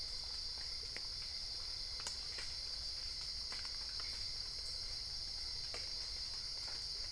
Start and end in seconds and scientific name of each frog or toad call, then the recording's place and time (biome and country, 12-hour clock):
none
Cerrado, Brazil, 12:00am